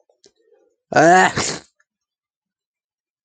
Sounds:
Sneeze